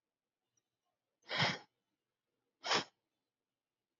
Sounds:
Sniff